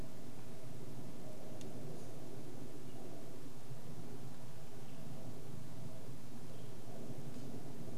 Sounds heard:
airplane

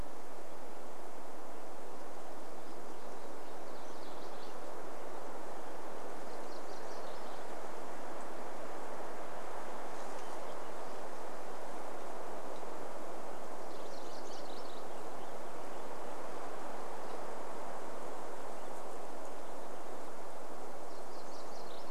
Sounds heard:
Purple Finch song, MacGillivray's Warbler song, Warbling Vireo song

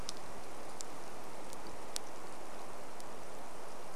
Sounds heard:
rain

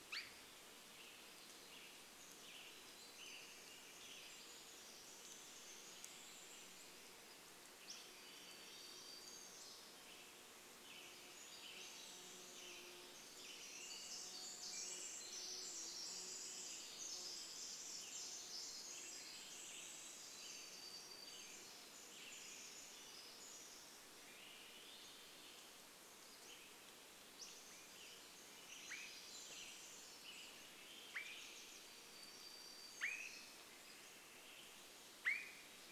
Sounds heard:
Pacific Wren song, insect buzz, Western Tanager song, Swainson's Thrush song, Swainson's Thrush call, Pacific-slope Flycatcher call, Pacific-slope Flycatcher song, warbler song

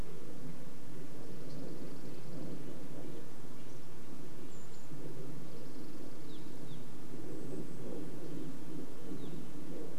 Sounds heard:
Golden-crowned Kinglet call, Red-breasted Nuthatch song, Evening Grosbeak call, Dark-eyed Junco song, airplane

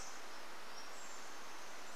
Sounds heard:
Brown Creeper call, Pacific-slope Flycatcher song

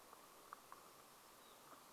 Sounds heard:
unidentified sound, unidentified bird chip note

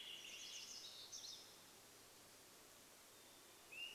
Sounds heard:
Swainson's Thrush call, Swainson's Thrush song, Pacific Wren song, Hermit Thrush song

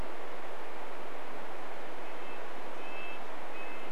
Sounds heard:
Red-breasted Nuthatch song

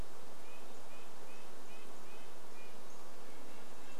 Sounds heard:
Red-breasted Nuthatch song, insect buzz, unidentified bird chip note

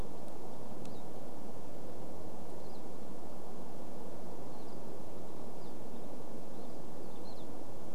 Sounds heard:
Pine Siskin song, Pine Siskin call

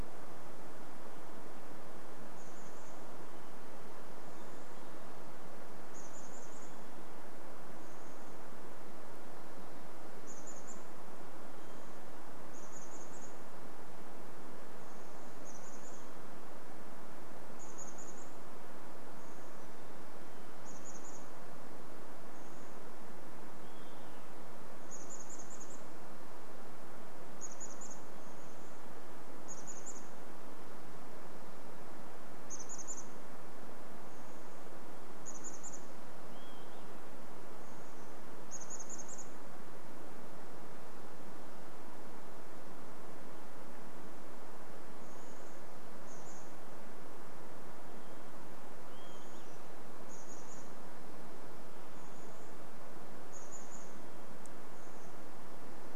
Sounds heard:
Hermit Thrush song, unidentified sound, Chestnut-backed Chickadee call, Olive-sided Flycatcher song

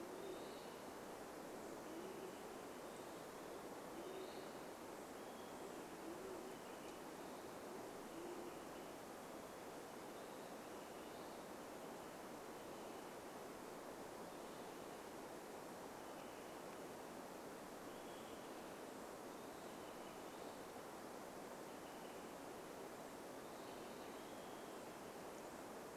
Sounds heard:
Band-tailed Pigeon call, Olive-sided Flycatcher call, Western Wood-Pewee song, Olive-sided Flycatcher song

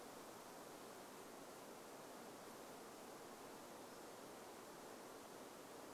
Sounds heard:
insect buzz

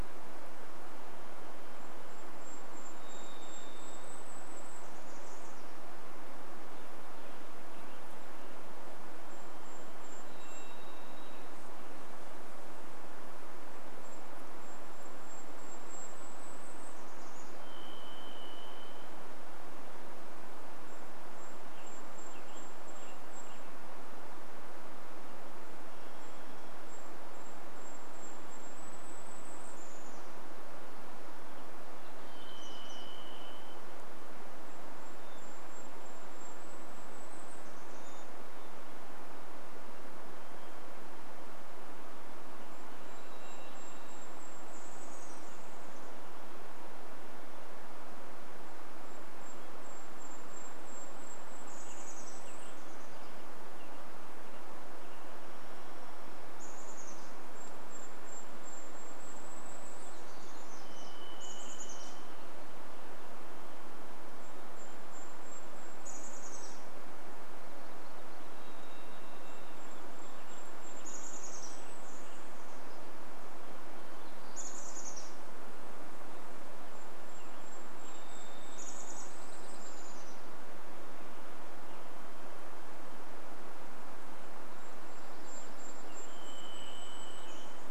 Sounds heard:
Golden-crowned Kinglet song, Chestnut-backed Chickadee call, American Robin song, Varied Thrush song, warbler song, Dark-eyed Junco song, Golden-crowned Kinglet call, Western Tanager song, unidentified sound, Hermit Thrush song

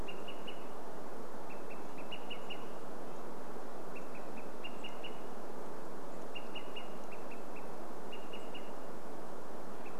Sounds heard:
unidentified bird chip note, Olive-sided Flycatcher call, Red-breasted Nuthatch song

